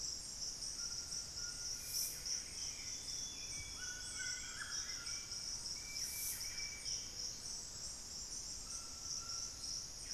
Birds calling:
Hauxwell's Thrush (Turdus hauxwelli)
Golden-crowned Spadebill (Platyrinchus coronatus)
Buff-breasted Wren (Cantorchilus leucotis)
White-throated Toucan (Ramphastos tucanus)
Ringed Woodpecker (Celeus torquatus)
Amazonian Grosbeak (Cyanoloxia rothschildii)

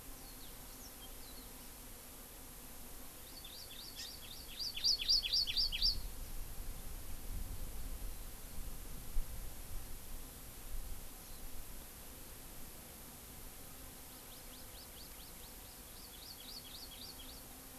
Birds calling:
Warbling White-eye (Zosterops japonicus)
Hawaii Amakihi (Chlorodrepanis virens)

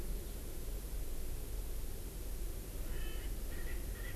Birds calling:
Erckel's Francolin (Pternistis erckelii)

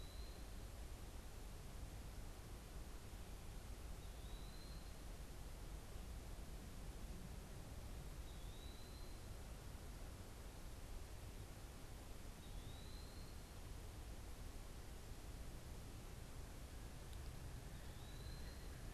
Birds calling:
Eastern Wood-Pewee (Contopus virens)

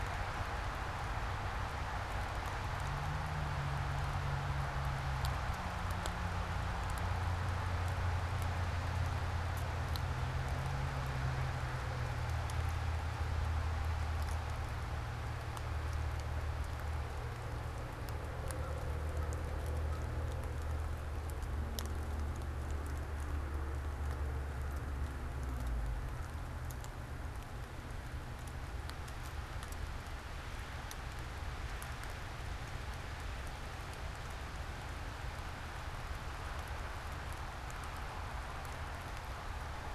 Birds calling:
American Crow (Corvus brachyrhynchos)

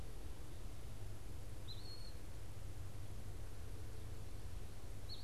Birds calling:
Eastern Wood-Pewee (Contopus virens)

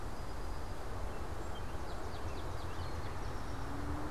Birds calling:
unidentified bird
Swamp Sparrow (Melospiza georgiana)

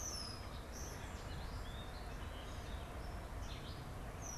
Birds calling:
Warbling Vireo (Vireo gilvus)
European Starling (Sturnus vulgaris)
Red-winged Blackbird (Agelaius phoeniceus)

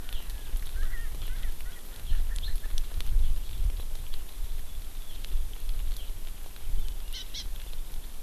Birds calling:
Hawaii Amakihi (Chlorodrepanis virens)
Erckel's Francolin (Pternistis erckelii)

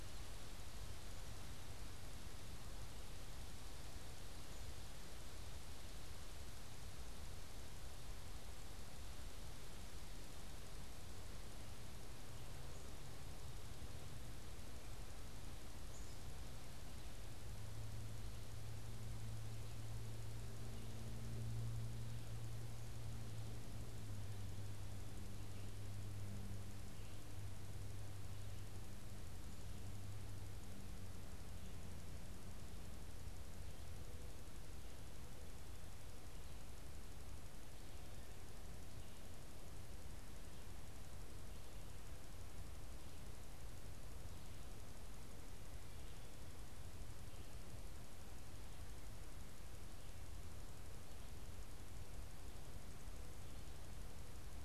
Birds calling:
Black-capped Chickadee (Poecile atricapillus)

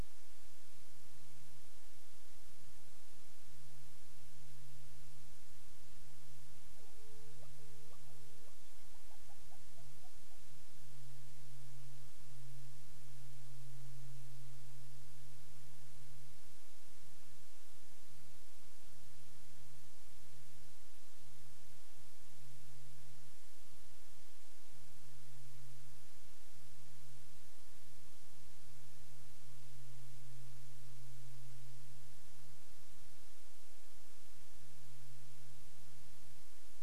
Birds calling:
Hawaiian Petrel (Pterodroma sandwichensis)

